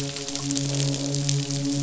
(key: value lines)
label: biophony
recorder: SoundTrap 500

label: biophony, midshipman
recorder: SoundTrap 500

label: biophony, croak
recorder: SoundTrap 500